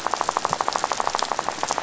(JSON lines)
{"label": "biophony, rattle", "recorder": "SoundTrap 500"}